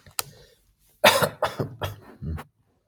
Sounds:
Cough